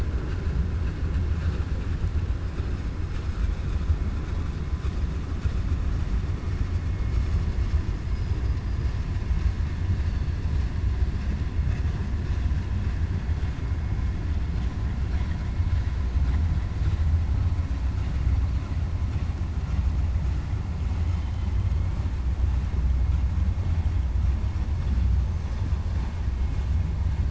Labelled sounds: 8.0	9.0	killer whale, 4.2 to 5.5 kHz

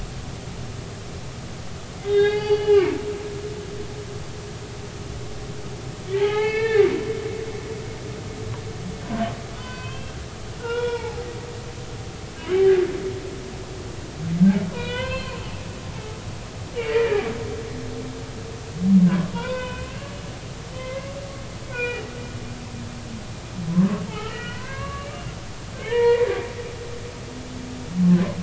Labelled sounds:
2.0	3.0	humpback whale, 0.80 to 4.7 kHz
6.2	6.9	humpback whale, 0.80 to 4.4 kHz
9.5	10.1	humpback whale, 0.96 to 4.6 kHz
10.6	11.3	humpback whale, 0.80 to 3.5 kHz
14.7	15.4	humpback whale, 0.90 to 4.3 kHz
16.8	17.3	humpback whale, 1.6 to 3.0 kHz
19.3	20.1	humpback whale, 0.86 to 3.1 kHz
20.8	21.1	humpback whale, 0.96 to 2.2 kHz
21.7	22.1	humpback whale, 0.86 to 2.6 kHz
24.1	25.1	humpback whale, 0.80 to 3.2 kHz
25.8	26.3	humpback whale, 0.86 to 2.5 kHz

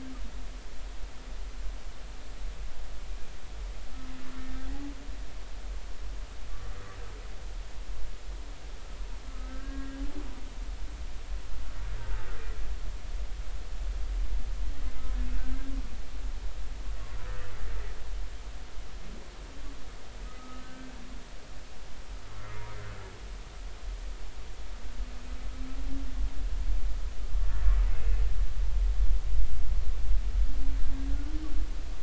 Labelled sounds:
9.3	10.0	humpback whale, 1.1 to 2.0 kHz
15.4	15.7	humpback whale, 1.5 to 1.6 kHz
20.2	20.9	humpback whale, 1.2 to 1.6 kHz
28.0	28.2	humpback whale, 2.5 to 2.7 kHz

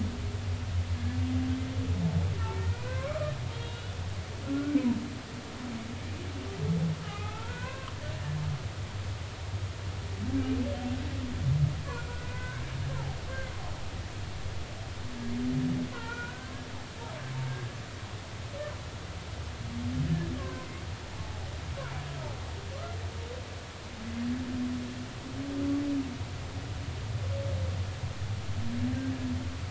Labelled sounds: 2.6	4.0	humpback whale, 0.96 to 3.9 kHz
4.5	4.9	humpback whale, 1.3 to 2.4 kHz
7.0	7.9	humpback whale, 0.80 to 2.8 kHz
11.9	12.6	humpback whale, 1.4 to 1.7 kHz
12.9	13.2	humpback whale, 0.80 to 1.1 kHz
15.9	16.5	humpback whale, 0.86 to 2.5 kHz
20.1	20.7	humpback whale, 0.96 to 1.8 kHz
21.2	21.5	humpback whale, 0.80 to 0.90 kHz

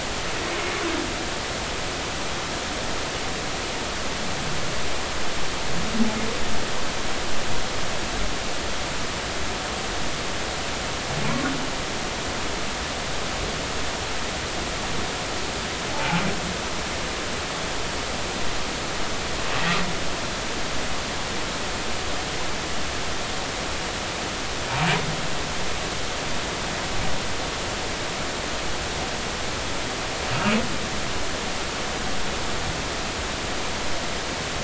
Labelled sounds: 15.9	16.2	humpback whale, 0.80 to 0.93 kHz

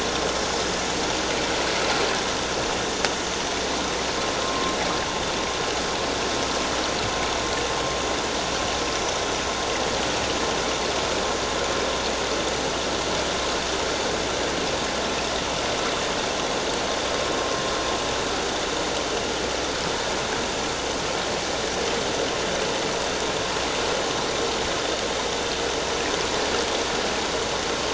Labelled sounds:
4.4	4.8	vessel noise, 1.0 to 1.2 kHz

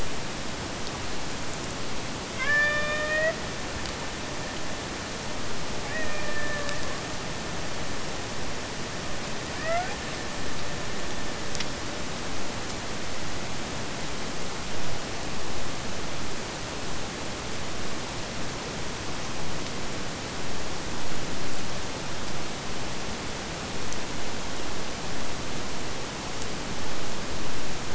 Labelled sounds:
2.2	3.4	killer whale, Bigg's (transient), AT1 transient, 0.44 to 5.7 kHz
5.8	7.1	killer whale, Bigg's (transient), AT1 transient, 0.46 to 2.7 kHz
9.4	10.1	killer whale, Bigg's (transient), AT1 transient, 0.53 to 2.9 kHz

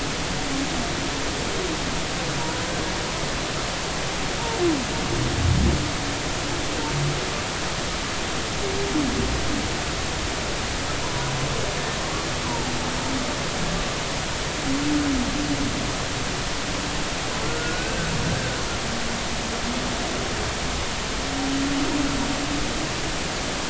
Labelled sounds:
11.0	11.3	humpback whale, 0.93 to 1.1 kHz
12.4	12.7	humpback whale, 0.80 to 1.2 kHz
17.4	17.9	humpback whale, 1.3 to 1.6 kHz

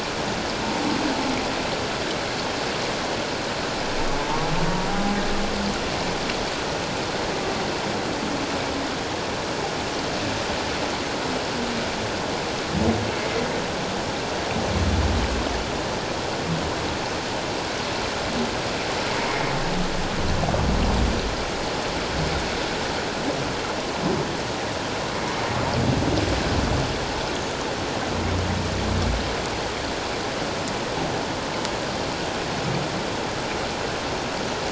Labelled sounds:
4.9	5.2	humpback whale, 0.78 to 0.84 kHz

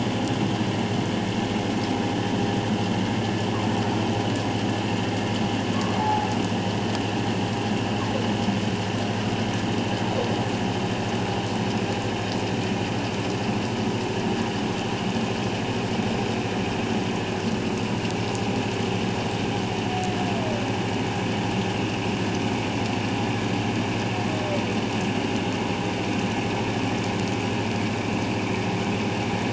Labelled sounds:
6.0	6.3	humpback whale, 0.78 to 0.94 kHz

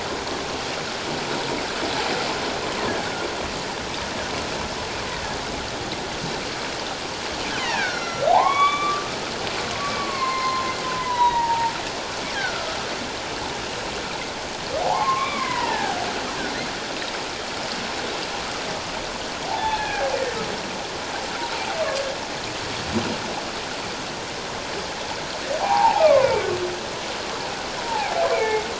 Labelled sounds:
2.9	3.1	humpback whale, 1.4 to 1.8 kHz
7.5	9.0	humpback whale, 0.78 to 5.8 kHz
10.0	11.7	humpback whale, 0.78 to 4.3 kHz
12.3	12.7	humpback whale, 1.3 to 1.8 kHz
14.8	16.0	humpback whale, 0.78 to 2.4 kHz
19.5	20.1	humpback whale, 0.78 to 2.6 kHz
25.6	26.5	humpback whale, 0.78 to 2.6 kHz
27.8	28.6	humpback whale, 0.78 to 2.4 kHz

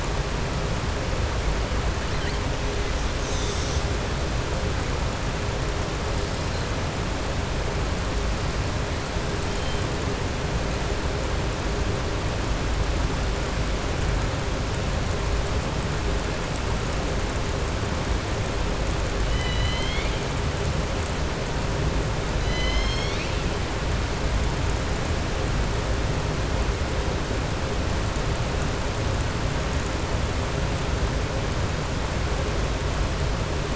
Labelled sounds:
19.2	20.2	killer whale, southern resident, 2.0 to 4.6 kHz
22.4	23.4	killer whale, southern resident, 2.0 to 6.5 kHz

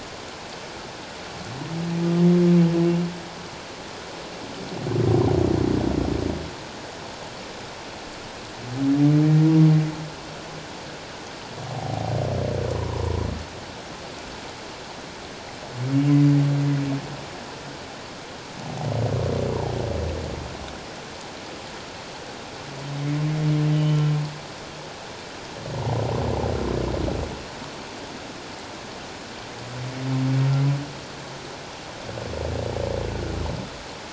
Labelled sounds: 11.7	12.1	humpback whale, 0.78 to 0.84 kHz
12.7	13.3	humpback whale, 0.88 to 1.1 kHz
23.7	24.1	humpback whale, 2.8 to 3.1 kHz

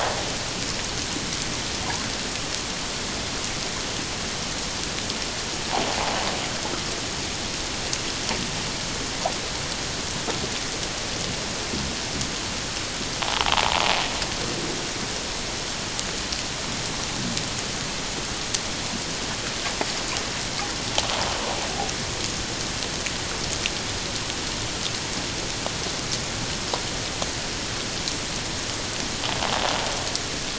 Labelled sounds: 13.2	13.5	invertebrate grinding on or near the hydrophone, 0.78 to 1.2 kHz

